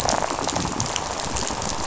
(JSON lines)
{"label": "biophony, rattle", "recorder": "SoundTrap 500"}